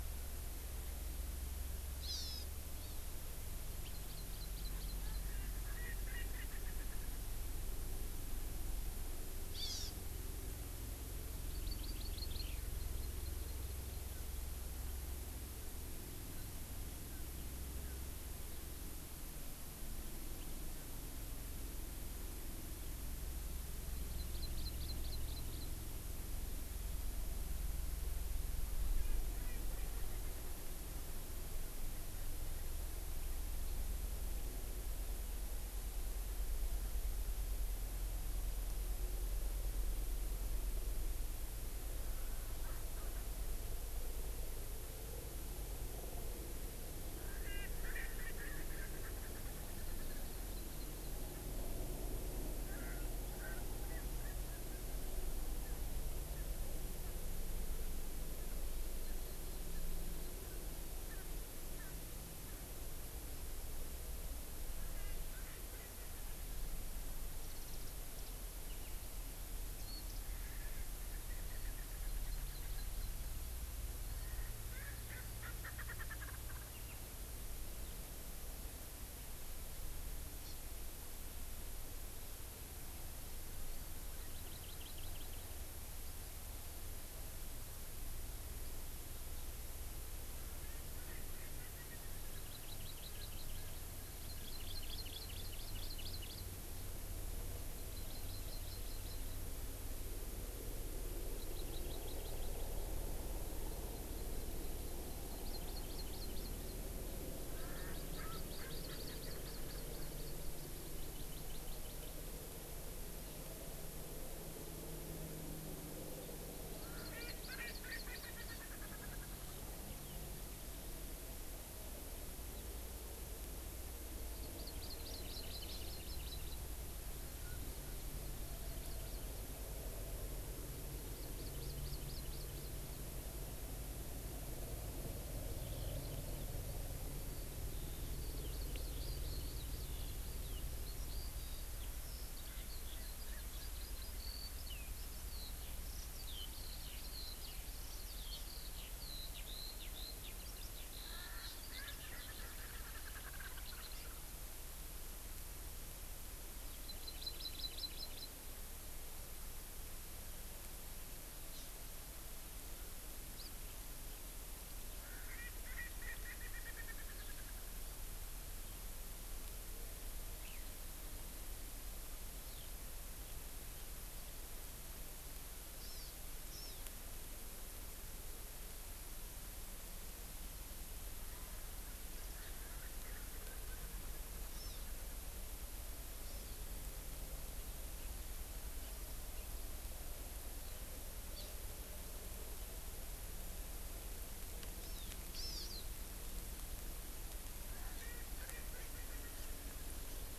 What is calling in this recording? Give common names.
Hawaii Amakihi, Erckel's Francolin, Eurasian Skylark, Warbling White-eye